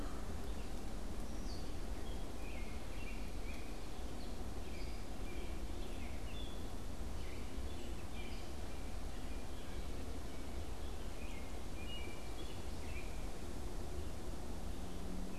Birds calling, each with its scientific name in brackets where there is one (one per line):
Gray Catbird (Dumetella carolinensis)
American Robin (Turdus migratorius)